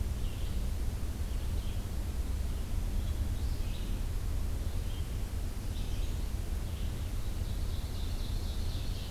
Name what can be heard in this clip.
Red-eyed Vireo, American Redstart, Ovenbird